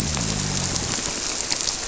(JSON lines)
{"label": "biophony", "recorder": "SoundTrap 300"}